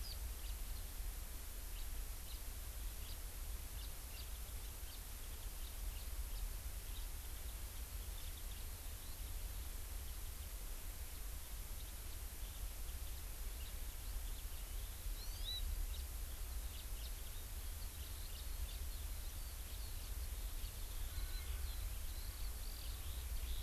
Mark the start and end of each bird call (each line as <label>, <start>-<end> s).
House Finch (Haemorhous mexicanus), 0.4-0.6 s
House Finch (Haemorhous mexicanus), 1.7-1.9 s
House Finch (Haemorhous mexicanus), 2.2-2.5 s
House Finch (Haemorhous mexicanus), 3.0-3.2 s
House Finch (Haemorhous mexicanus), 3.7-4.3 s
House Finch (Haemorhous mexicanus), 4.9-5.1 s
House Finch (Haemorhous mexicanus), 5.6-6.5 s
Hawaii Amakihi (Chlorodrepanis virens), 15.1-15.7 s
House Finch (Haemorhous mexicanus), 15.9-16.1 s
House Finch (Haemorhous mexicanus), 16.7-17.1 s
Eurasian Skylark (Alauda arvensis), 17.9-23.6 s